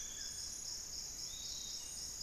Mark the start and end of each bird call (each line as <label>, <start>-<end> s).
Buff-throated Woodcreeper (Xiphorhynchus guttatus), 0.0-0.7 s
Hauxwell's Thrush (Turdus hauxwelli), 0.0-2.2 s
Piratic Flycatcher (Legatus leucophaius), 0.0-2.2 s